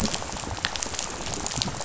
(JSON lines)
{"label": "biophony, rattle", "recorder": "SoundTrap 500"}